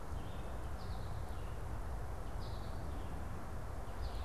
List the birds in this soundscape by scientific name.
Vireo olivaceus, Spinus tristis